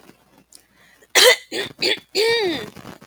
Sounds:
Throat clearing